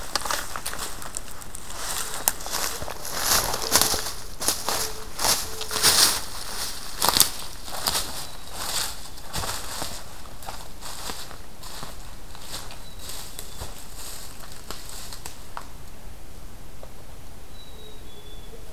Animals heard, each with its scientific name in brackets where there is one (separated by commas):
Mourning Dove (Zenaida macroura), Black-capped Chickadee (Poecile atricapillus)